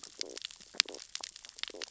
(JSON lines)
{"label": "biophony, stridulation", "recorder": "SoundTrap 600 or HydroMoth"}